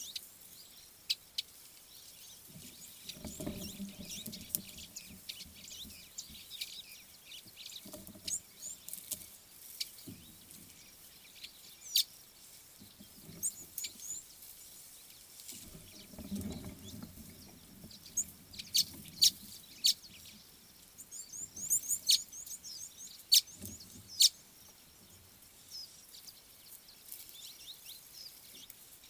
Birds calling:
Chestnut Weaver (Ploceus rubiginosus), Red-cheeked Cordonbleu (Uraeginthus bengalus)

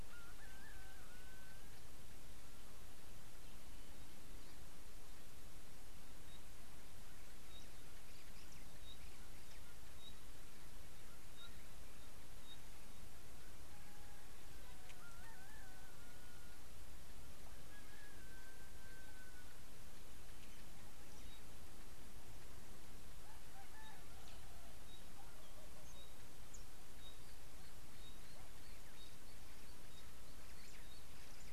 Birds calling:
Pygmy Batis (Batis perkeo)

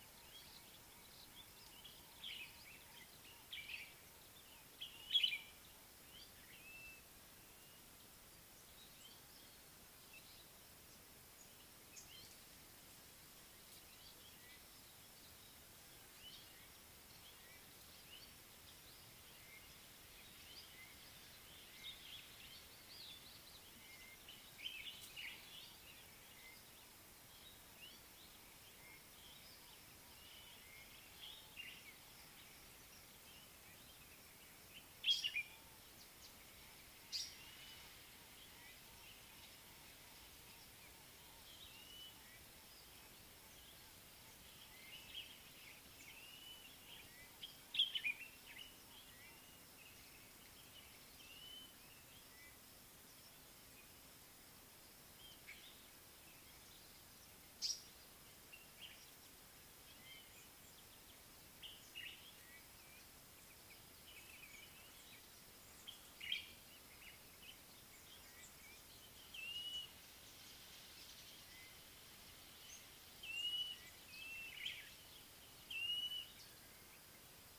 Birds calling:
Blue-naped Mousebird (Urocolius macrourus), African Paradise-Flycatcher (Terpsiphone viridis), Gray-backed Camaroptera (Camaroptera brevicaudata), White-crested Turaco (Tauraco leucolophus), Superb Starling (Lamprotornis superbus), Common Bulbul (Pycnonotus barbatus)

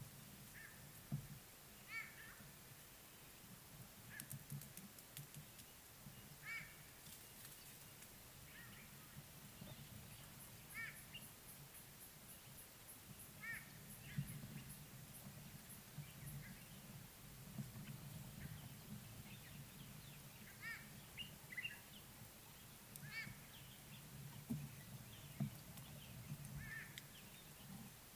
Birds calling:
White-bellied Go-away-bird (Corythaixoides leucogaster)

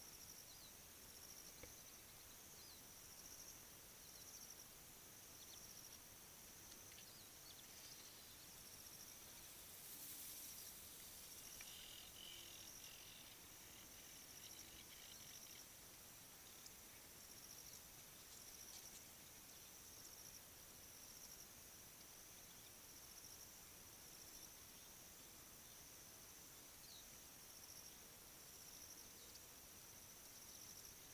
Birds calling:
African Jacana (Actophilornis africanus)

